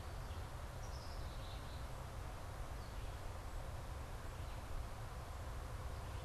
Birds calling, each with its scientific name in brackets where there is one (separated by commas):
Black-capped Chickadee (Poecile atricapillus), Red-eyed Vireo (Vireo olivaceus)